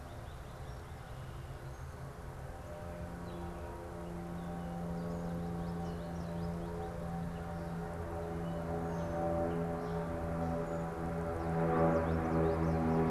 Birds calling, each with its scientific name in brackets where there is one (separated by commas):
American Goldfinch (Spinus tristis)